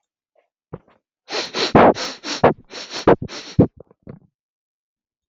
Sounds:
Sniff